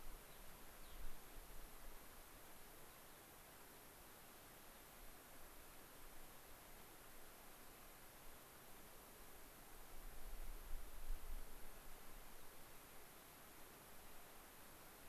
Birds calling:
Gray-crowned Rosy-Finch (Leucosticte tephrocotis)

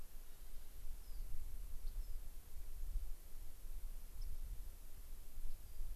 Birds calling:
Rock Wren (Salpinctes obsoletus), White-crowned Sparrow (Zonotrichia leucophrys)

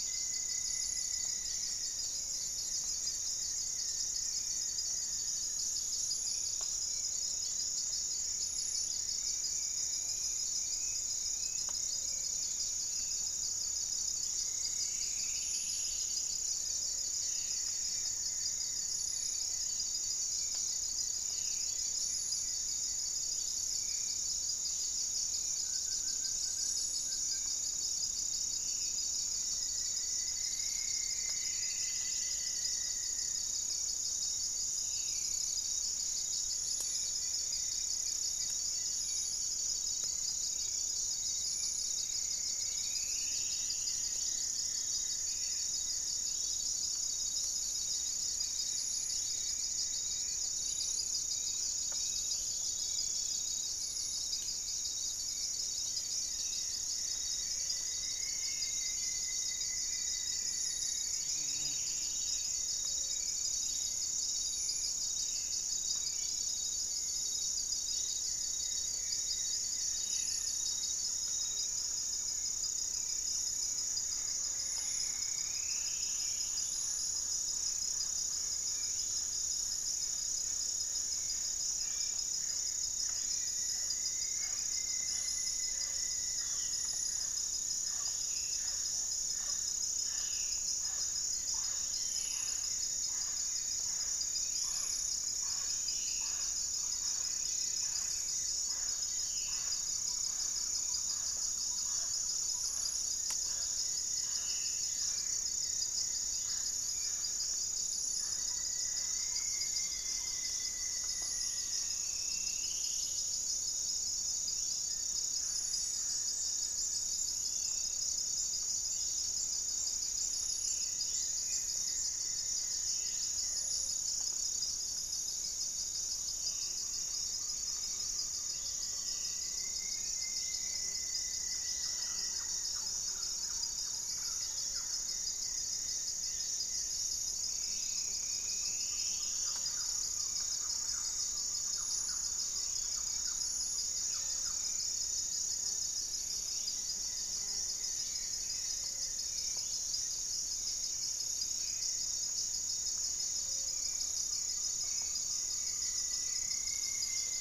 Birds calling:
Black-faced Antthrush (Formicarius analis), Striped Woodcreeper (Xiphorhynchus obsoletus), Gray Antwren (Myrmotherula menetriesii), Rufous-fronted Antthrush (Formicarius rufifrons), Gray-fronted Dove (Leptotila rufaxilla), Black-spotted Bare-eye (Phlegopsis nigromaculata), Spot-winged Antshrike (Pygiptila stellaris), Wing-barred Piprites (Piprites chloris), Hauxwell's Thrush (Turdus hauxwelli), unidentified bird, Thrush-like Wren (Campylorhynchus turdinus), Goeldi's Antbird (Akletos goeldii), Mealy Parrot (Amazona farinosa), Great Antshrike (Taraba major)

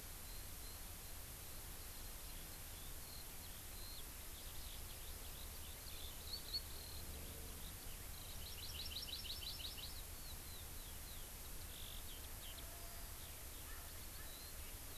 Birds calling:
Hawaii Amakihi (Chlorodrepanis virens), Eurasian Skylark (Alauda arvensis)

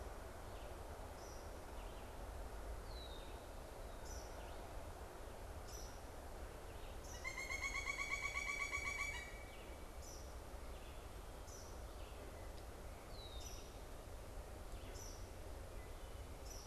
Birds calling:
Eastern Kingbird (Tyrannus tyrannus), Pileated Woodpecker (Dryocopus pileatus), Red-eyed Vireo (Vireo olivaceus), Red-winged Blackbird (Agelaius phoeniceus)

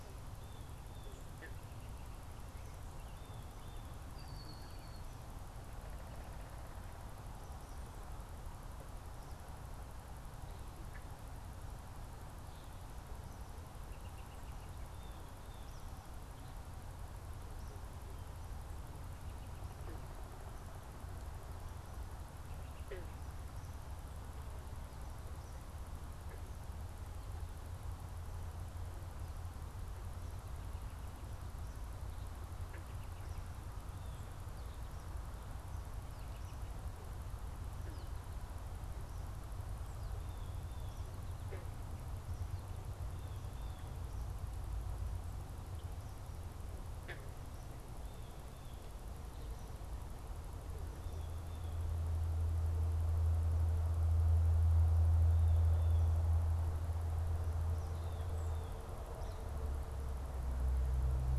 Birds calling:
Eastern Kingbird (Tyrannus tyrannus), Blue Jay (Cyanocitta cristata), American Robin (Turdus migratorius), Red-winged Blackbird (Agelaius phoeniceus), American Goldfinch (Spinus tristis)

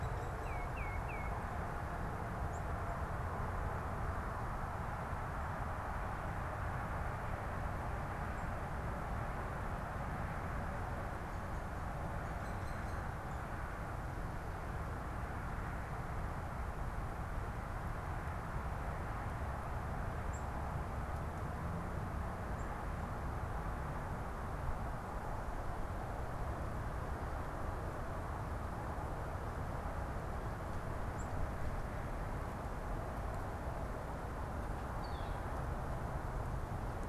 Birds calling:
Black-capped Chickadee (Poecile atricapillus), unidentified bird, Northern Flicker (Colaptes auratus), Tufted Titmouse (Baeolophus bicolor)

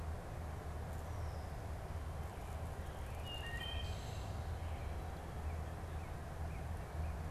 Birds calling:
Wood Thrush (Hylocichla mustelina), Northern Cardinal (Cardinalis cardinalis)

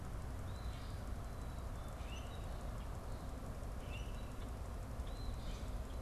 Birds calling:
Common Grackle (Quiscalus quiscula), Eastern Phoebe (Sayornis phoebe)

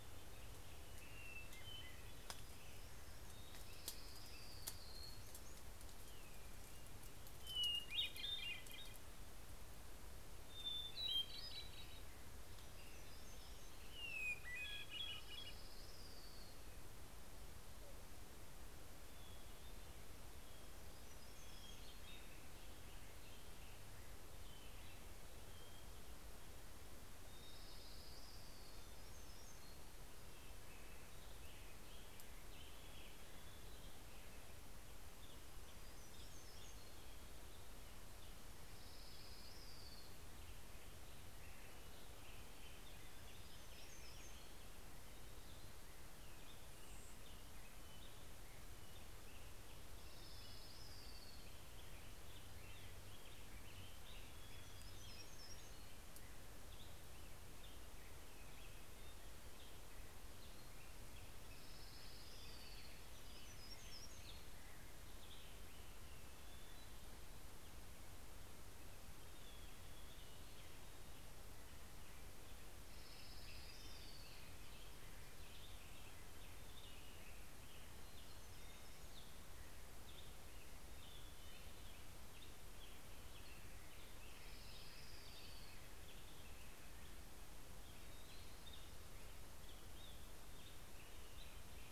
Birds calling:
Orange-crowned Warbler (Leiothlypis celata), Hermit Thrush (Catharus guttatus), Hermit Warbler (Setophaga occidentalis), Black-headed Grosbeak (Pheucticus melanocephalus)

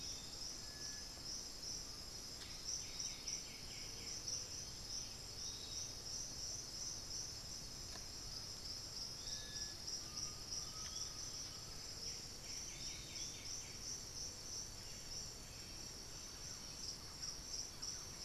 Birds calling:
unidentified bird, Undulated Tinamou (Crypturellus undulatus), Thrush-like Wren (Campylorhynchus turdinus), Piratic Flycatcher (Legatus leucophaius), White-winged Becard (Pachyramphus polychopterus)

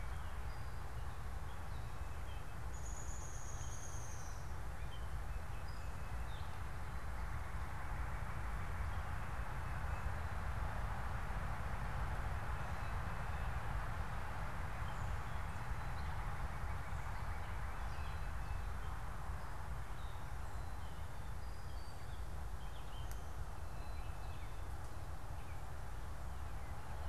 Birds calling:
Downy Woodpecker (Dryobates pubescens), unidentified bird, Northern Cardinal (Cardinalis cardinalis)

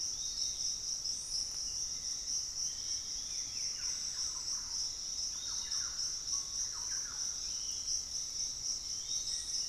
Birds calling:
Thrush-like Wren (Campylorhynchus turdinus), Bluish-fronted Jacamar (Galbula cyanescens), Black-faced Antthrush (Formicarius analis), Piratic Flycatcher (Legatus leucophaius)

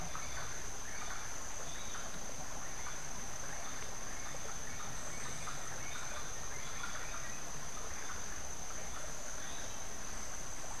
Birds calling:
Gray-headed Chachalaca (Ortalis cinereiceps)

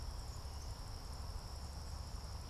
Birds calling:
Black-capped Chickadee (Poecile atricapillus)

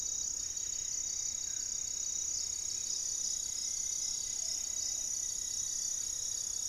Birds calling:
Buff-breasted Wren (Cantorchilus leucotis), Striped Woodcreeper (Xiphorhynchus obsoletus), Buff-throated Woodcreeper (Xiphorhynchus guttatus), Gray-fronted Dove (Leptotila rufaxilla), Plumbeous Pigeon (Patagioenas plumbea)

